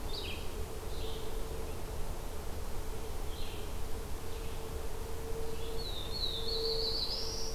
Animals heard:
Black-throated Blue Warbler (Setophaga caerulescens), Red-eyed Vireo (Vireo olivaceus)

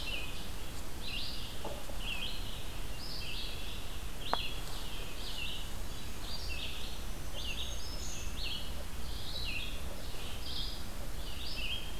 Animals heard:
Black-throated Green Warbler (Setophaga virens), Golden-crowned Kinglet (Regulus satrapa), Red-eyed Vireo (Vireo olivaceus)

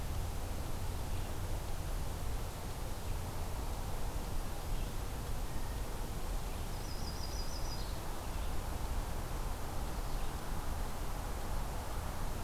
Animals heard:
Yellow-rumped Warbler (Setophaga coronata), Red-eyed Vireo (Vireo olivaceus)

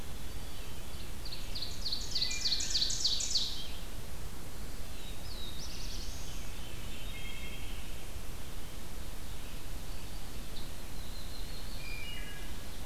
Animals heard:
Yellow-rumped Warbler (Setophaga coronata), Black-throated Blue Warbler (Setophaga caerulescens), Veery (Catharus fuscescens), Scarlet Tanager (Piranga olivacea), Wood Thrush (Hylocichla mustelina), Ovenbird (Seiurus aurocapilla)

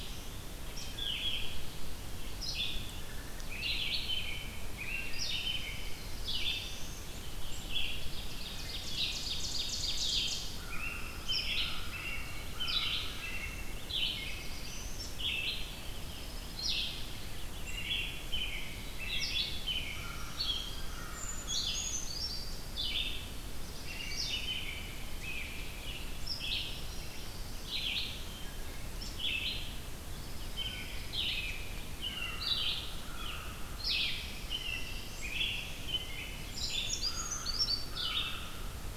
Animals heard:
Black-throated Blue Warbler (Setophaga caerulescens), American Robin (Turdus migratorius), American Crow (Corvus brachyrhynchos), Red-eyed Vireo (Vireo olivaceus), Black-throated Green Warbler (Setophaga virens), Ovenbird (Seiurus aurocapilla), Brown Creeper (Certhia americana), Wood Thrush (Hylocichla mustelina), Pine Warbler (Setophaga pinus)

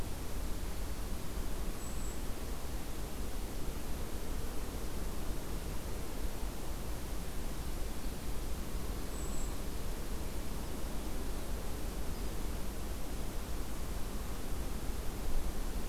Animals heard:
Golden-crowned Kinglet (Regulus satrapa)

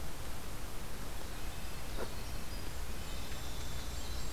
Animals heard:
Winter Wren (Troglodytes hiemalis), Red-breasted Nuthatch (Sitta canadensis), Golden-crowned Kinglet (Regulus satrapa)

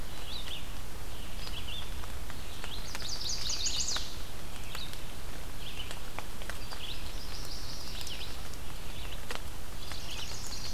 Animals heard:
Chestnut-sided Warbler (Setophaga pensylvanica), Red-eyed Vireo (Vireo olivaceus)

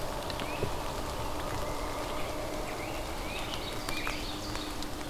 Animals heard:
Scarlet Tanager (Piranga olivacea), Great Crested Flycatcher (Myiarchus crinitus), Pileated Woodpecker (Dryocopus pileatus), Ovenbird (Seiurus aurocapilla)

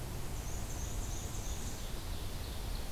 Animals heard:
Ovenbird (Seiurus aurocapilla), Black-and-white Warbler (Mniotilta varia)

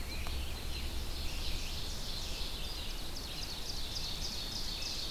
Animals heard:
Ovenbird (Seiurus aurocapilla), Scarlet Tanager (Piranga olivacea), American Robin (Turdus migratorius), Red-eyed Vireo (Vireo olivaceus)

